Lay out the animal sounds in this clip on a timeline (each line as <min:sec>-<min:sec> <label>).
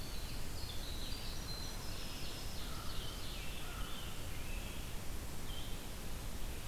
0:00.0-0:02.7 Winter Wren (Troglodytes hiemalis)
0:00.0-0:06.7 Red-eyed Vireo (Vireo olivaceus)
0:01.8-0:03.5 Ovenbird (Seiurus aurocapilla)
0:02.6-0:04.0 American Crow (Corvus brachyrhynchos)
0:02.7-0:04.3 Scarlet Tanager (Piranga olivacea)